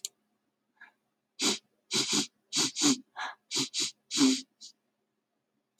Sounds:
Sniff